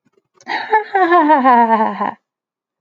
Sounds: Laughter